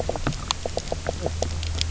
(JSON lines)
{"label": "biophony, knock croak", "recorder": "SoundTrap 300"}